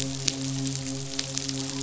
{"label": "biophony, midshipman", "recorder": "SoundTrap 500"}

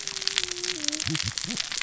{"label": "biophony, cascading saw", "recorder": "SoundTrap 600 or HydroMoth"}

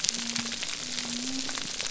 {"label": "biophony", "recorder": "SoundTrap 300"}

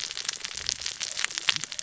{"label": "biophony, cascading saw", "recorder": "SoundTrap 600 or HydroMoth"}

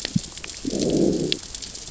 {"label": "biophony, growl", "recorder": "SoundTrap 600 or HydroMoth"}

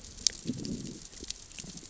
{"label": "biophony, growl", "recorder": "SoundTrap 600 or HydroMoth"}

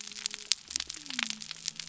{"label": "biophony", "recorder": "SoundTrap 300"}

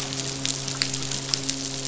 {"label": "biophony, midshipman", "recorder": "SoundTrap 500"}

